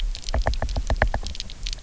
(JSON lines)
{"label": "biophony, knock", "recorder": "SoundTrap 300"}